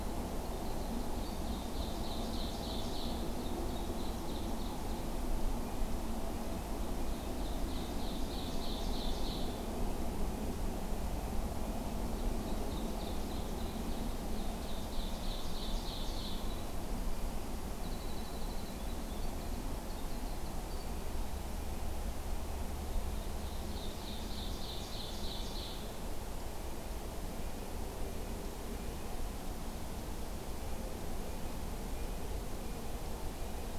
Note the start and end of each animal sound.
0.0s-1.6s: Winter Wren (Troglodytes hiemalis)
1.3s-5.1s: Ovenbird (Seiurus aurocapilla)
5.5s-8.6s: Red-breasted Nuthatch (Sitta canadensis)
6.7s-9.6s: Ovenbird (Seiurus aurocapilla)
12.1s-16.5s: Ovenbird (Seiurus aurocapilla)
17.7s-21.1s: Winter Wren (Troglodytes hiemalis)
23.2s-25.9s: Ovenbird (Seiurus aurocapilla)
27.8s-29.2s: Red-breasted Nuthatch (Sitta canadensis)
30.5s-33.8s: Red-breasted Nuthatch (Sitta canadensis)

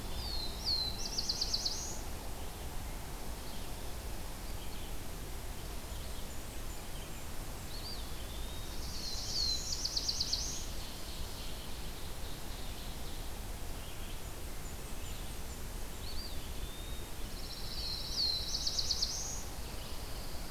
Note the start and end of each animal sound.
0.0s-0.6s: Eastern Wood-Pewee (Contopus virens)
0.0s-2.1s: Black-throated Blue Warbler (Setophaga caerulescens)
0.0s-7.1s: Red-eyed Vireo (Vireo olivaceus)
5.3s-7.4s: Blackburnian Warbler (Setophaga fusca)
7.6s-8.7s: Eastern Wood-Pewee (Contopus virens)
8.0s-10.7s: Black-throated Blue Warbler (Setophaga caerulescens)
10.4s-13.4s: Ovenbird (Seiurus aurocapilla)
13.7s-20.5s: Red-eyed Vireo (Vireo olivaceus)
13.9s-16.1s: Blackburnian Warbler (Setophaga fusca)
15.8s-17.2s: Eastern Wood-Pewee (Contopus virens)
17.0s-19.5s: Black-throated Blue Warbler (Setophaga caerulescens)
17.1s-19.1s: Pine Warbler (Setophaga pinus)
19.5s-20.5s: Pine Warbler (Setophaga pinus)

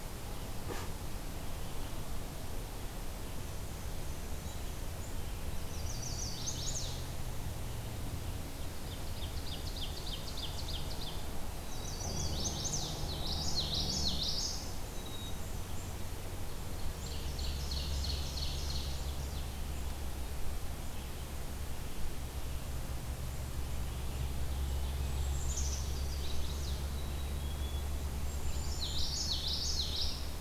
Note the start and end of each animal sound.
3.3s-4.9s: Black-and-white Warbler (Mniotilta varia)
5.6s-7.2s: Chestnut-sided Warbler (Setophaga pensylvanica)
8.5s-11.4s: Ovenbird (Seiurus aurocapilla)
11.5s-12.3s: Black-capped Chickadee (Poecile atricapillus)
11.6s-13.1s: Chestnut-sided Warbler (Setophaga pensylvanica)
12.9s-14.9s: Common Yellowthroat (Geothlypis trichas)
14.1s-16.1s: Black-and-white Warbler (Mniotilta varia)
16.9s-19.5s: Ovenbird (Seiurus aurocapilla)
24.7s-26.0s: Black-capped Chickadee (Poecile atricapillus)
25.5s-27.1s: Chestnut-sided Warbler (Setophaga pensylvanica)
26.9s-29.2s: Black-capped Chickadee (Poecile atricapillus)
28.8s-30.4s: Common Yellowthroat (Geothlypis trichas)

